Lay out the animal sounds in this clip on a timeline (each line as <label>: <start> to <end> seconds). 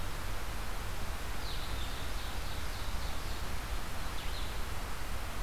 Blue-headed Vireo (Vireo solitarius): 0.0 to 5.4 seconds
Ovenbird (Seiurus aurocapilla): 1.1 to 3.7 seconds
Red-eyed Vireo (Vireo olivaceus): 4.0 to 5.4 seconds